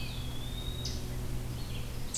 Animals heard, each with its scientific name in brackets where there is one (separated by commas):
Eastern Chipmunk (Tamias striatus), Eastern Wood-Pewee (Contopus virens)